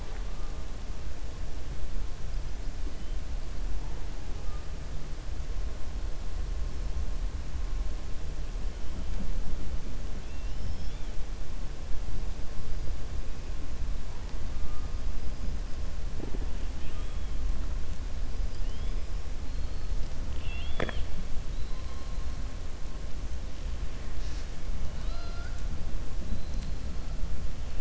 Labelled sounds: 10.2	11.1	killer whale, 2.4 to 5.6 kHz
24.9	25.7	killer whale, 0.66 to 7.6 kHz

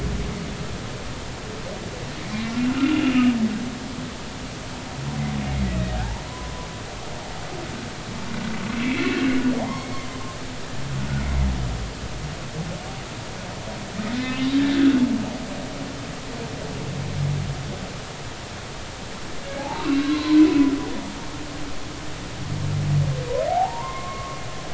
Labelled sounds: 2.7	3.3	humpback whale, 1.2 to 2.9 kHz
5.5	6.7	humpback whale, 0.96 to 2.2 kHz
8.7	10.2	humpback whale, 0.80 to 3.2 kHz
14.2	14.4	humpback whale, 2.5 to 2.7 kHz
19.6	20.7	humpback whale, 0.80 to 4.2 kHz
23.5	24.4	humpback whale, 0.80 to 2.2 kHz

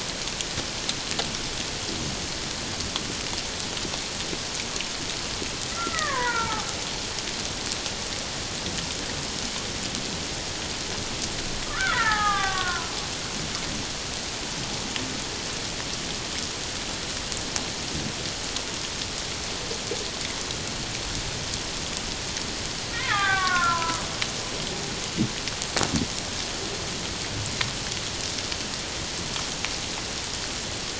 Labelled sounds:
5.7	6.7	killer whale, Bigg's (transient), 0.78 to 2.0 kHz
11.7	12.9	killer whale, Bigg's (transient), 0.78 to 3.6 kHz
22.9	24.0	killer whale, Bigg's (transient), 0.78 to 2.5 kHz

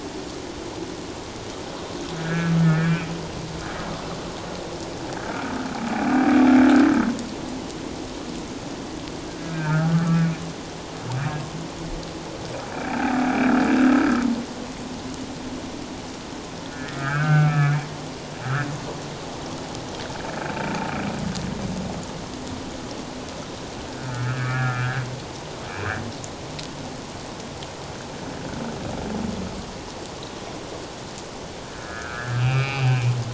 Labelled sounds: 2.2	3.1	humpback whale, 1.4 to 2.7 kHz
9.4	10.2	humpback whale, 1.1 to 2.5 kHz
12.9	13.2	humpback whale, 0.78 to 0.91 kHz
16.6	17.9	humpback whale, 1.1 to 2.6 kHz
24.0	25.0	humpback whale, 1.2 to 2.5 kHz
31.7	33.1	humpback whale, 0.78 to 3.0 kHz

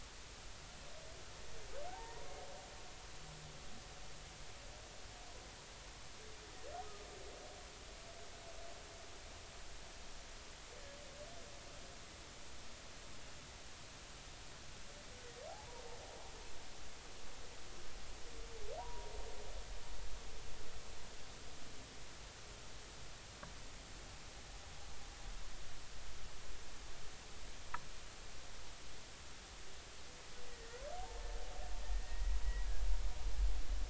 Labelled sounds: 1.9	2.3	humpback whale, 0.80 to 1.1 kHz
15.5	15.8	humpback whale, 0.80 to 1.0 kHz
18.8	19.1	humpback whale, 0.90 to 1.1 kHz
30.5	30.8	humpback whale, 1.8 to 2.0 kHz
31.8	32.4	humpback whale, 1.8 to 2.0 kHz

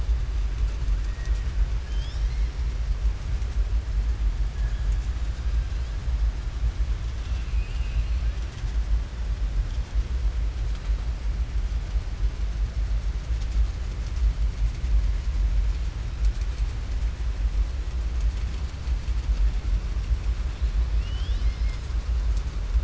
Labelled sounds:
7.1	8.3	killer whale, southern resident, 2.4 to 6.0 kHz
20.9	21.9	killer whale, southern resident, 2.1 to 5.8 kHz

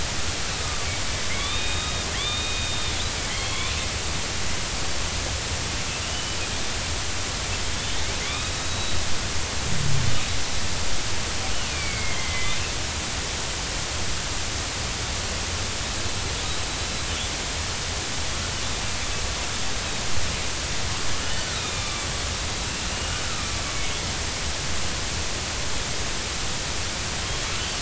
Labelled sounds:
0.6	0.9	killer whale, northern resident, 1.1 to 1.3 kHz
1.3	2.9	killer whale, northern resident, 1.8 to 3.8 kHz
3.3	3.7	killer whale, northern resident, 3.1 to 3.6 kHz
6.0	6.4	killer whale, northern resident, 2.7 to 3.0 kHz
8.2	9.0	killer whale, northern resident, 2.0 to 3.9 kHz
11.7	12.6	killer whale, northern resident, 2.0 to 4.6 kHz
16.7	17.1	killer whale, northern resident, 3.9 to 4.0 kHz
21.2	22.0	killer whale, northern resident, 1.1 to 3.1 kHz
22.9	23.2	killer whale, northern resident, 2.8 to 3.0 kHz

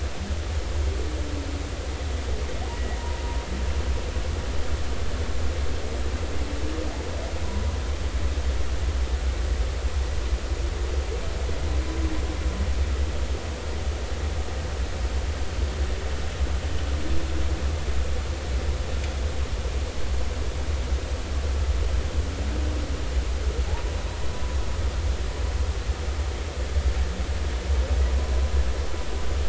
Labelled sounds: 2.7	3.2	humpback whale, 0.90 to 2.0 kHz
7.4	7.8	humpback whale, 0.93 to 1.1 kHz

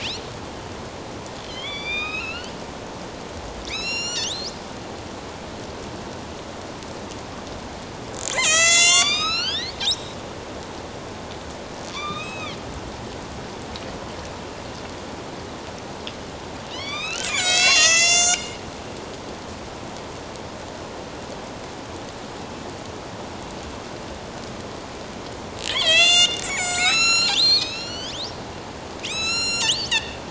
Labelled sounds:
1.5	2.5	killer whale, northern resident, A clan, AB subclan, 1.2 to 6.3 kHz
3.6	4.5	killer whale, northern resident, A clan, AB subclan, 2.0 to 8.0 kHz
8.3	10.2	killer whale, northern resident, A clan, AB subclan, 0.97 to 8.0 kHz
11.9	12.6	killer whale, northern resident, A clan, AB subclan, 1.0 to 6.5 kHz
16.7	18.6	killer whale, northern resident, A clan, AB subclan, 1.1 to 8.0 kHz
22.4	22.7	killer whale, northern resident, A clan, AB subclan, 2.6 to 2.7 kHz
25.7	28.2	killer whale, northern resident, A clan, AB subclan, 1.2 to 8.0 kHz
29.0	30.2	killer whale, northern resident, A clan, AB subclan, 1.2 to 8.0 kHz

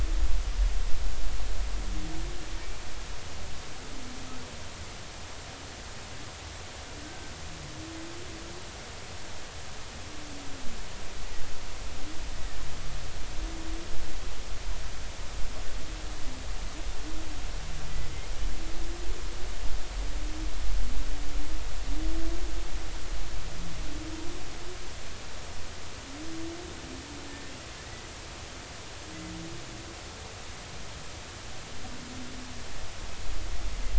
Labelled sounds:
7.0	7.3	humpback whale, 1.5 to 1.6 kHz

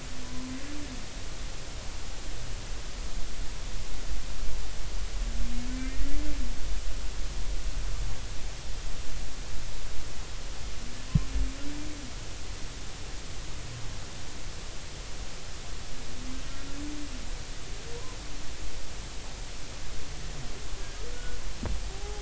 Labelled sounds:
0.2	0.5	humpback whale, 0.96 to 1.1 kHz
5.7	6.2	humpback whale, 1.8 to 2.1 kHz
21.1	22.2	humpback whale, 0.80 to 1.5 kHz

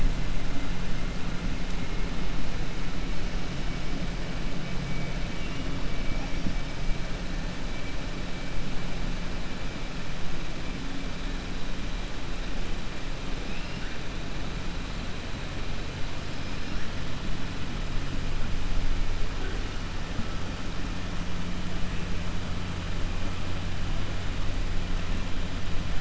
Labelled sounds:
13.4	13.9	killer whale, 1.8 to 2.9 kHz

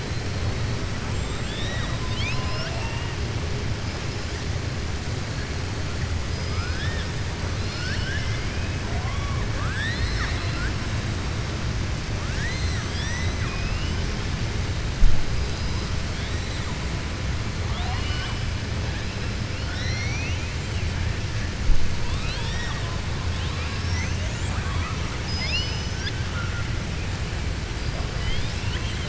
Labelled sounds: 6.2	7.1	killer whale, southern resident, 1.2 to 5.2 kHz
7.5	8.7	killer whale, southern resident, 1.5 to 5.8 kHz
9.5	10.7	killer whale, southern resident, 0.74 to 5.4 kHz
17.6	18.4	killer whale, southern resident, 0.72 to 5.1 kHz
22.0	22.9	killer whale, southern resident, 0.69 to 5.7 kHz
24.4	26.2	killer whale, southern resident, 0.62 to 6.4 kHz
28.1	29.0	killer whale, southern resident, 1.0 to 5.3 kHz

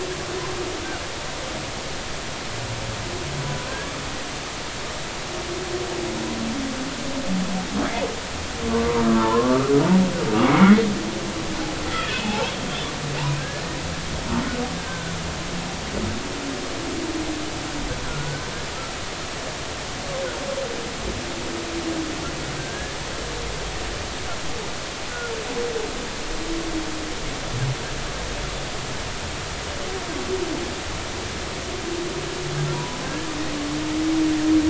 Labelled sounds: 3.7	3.9	humpback whale, 1.5 to 1.7 kHz
8.7	9.8	humpback whale, 0.83 to 1.4 kHz
10.4	10.9	humpback whale, 1.9 to 2.3 kHz
11.9	12.5	humpback whale, 0.80 to 3.5 kHz
13.4	13.6	humpback whale, 1.5 to 1.8 kHz
14.8	15.1	humpback whale, 1.4 to 1.7 kHz
18.0	18.4	humpback whale, 1.3 to 1.6 kHz
22.6	23.0	humpback whale, 1.5 to 1.8 kHz
32.7	33.3	humpback whale, 0.93 to 1.8 kHz

